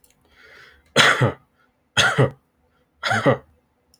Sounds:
Cough